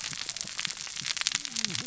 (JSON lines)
{"label": "biophony, cascading saw", "recorder": "SoundTrap 600 or HydroMoth"}